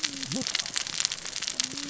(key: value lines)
label: biophony, cascading saw
recorder: SoundTrap 600 or HydroMoth